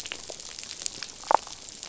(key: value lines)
label: biophony, damselfish
recorder: SoundTrap 500